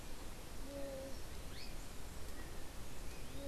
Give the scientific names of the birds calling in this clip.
unidentified bird, Synallaxis azarae